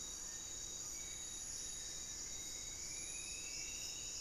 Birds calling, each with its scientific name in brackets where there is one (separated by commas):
Striped Woodcreeper (Xiphorhynchus obsoletus), Spot-winged Antshrike (Pygiptila stellaris), Black-faced Antthrush (Formicarius analis)